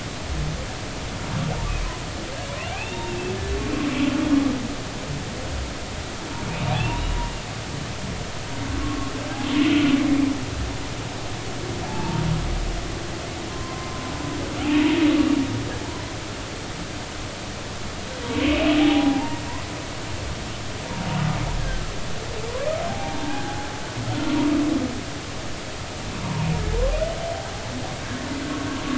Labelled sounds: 2.7	3.1	humpback whale, 2.3 to 3.7 kHz
6.7	7.2	humpback whale, 0.80 to 2.9 kHz
8.8	9.1	humpback whale, 1.1 to 1.2 kHz
11.9	12.2	humpback whale, 0.83 to 0.96 kHz
13.5	14.0	humpback whale, 0.99 to 1.1 kHz
18.3	19.4	humpback whale, 0.80 to 2.8 kHz
21.6	21.8	humpback whale, 1.5 to 1.7 kHz
22.9	23.7	humpback whale, 0.80 to 1.7 kHz
28.0	28.3	humpback whale, 1.5 to 1.9 kHz

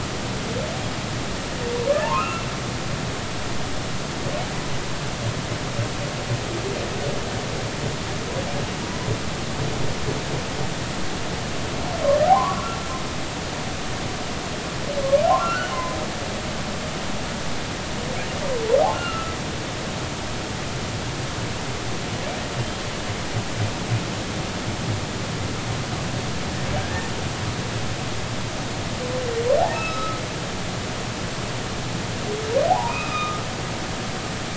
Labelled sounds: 2.0	2.5	humpback whale, 0.83 to 2.8 kHz
13.3	13.7	humpback whale, 0.80 to 1.2 kHz
15.4	16.0	humpback whale, 0.96 to 1.6 kHz
16.3	16.5	humpback whale, 0.80 to 1.2 kHz
18.9	19.4	humpback whale, 1.2 to 1.5 kHz
26.8	27.1	humpback whale, 1.6 to 1.9 kHz
29.7	30.2	humpback whale, 1.2 to 5.3 kHz
32.7	33.4	humpback whale, 0.80 to 2.7 kHz

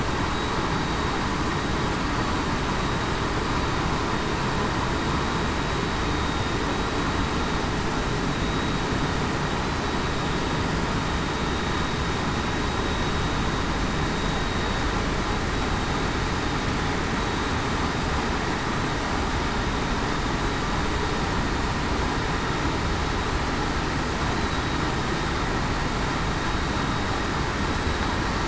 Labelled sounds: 22.9	23.3	vessel noise, 3.80 to 3.82 kHz
24.4	24.8	vessel noise, 3.8 to 3.9 kHz

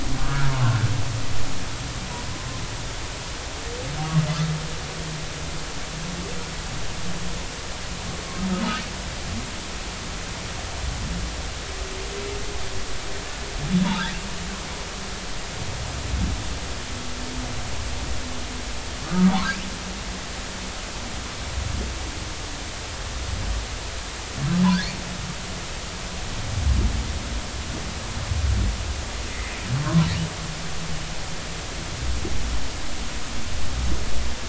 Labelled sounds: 0.3	0.5	humpback whale, 1.2 to 1.7 kHz
13.8	14.1	humpback whale, 0.83 to 1.1 kHz
19.1	19.3	humpback whale, 1.1 to 1.3 kHz
29.8	30.1	humpback whale, 0.90 to 1.2 kHz

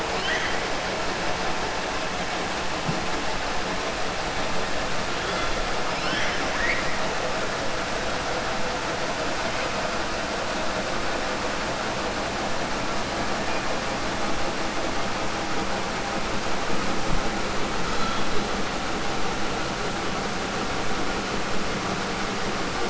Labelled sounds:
0.1	0.6	killer whale, 1.3 to 6.4 kHz
5.8	7.0	killer whale, 0.96 to 5.9 kHz
17.8	18.2	killer whale, 1.3 to 5.3 kHz

